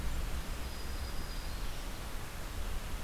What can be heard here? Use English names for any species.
Black-throated Green Warbler